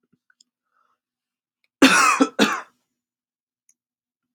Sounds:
Cough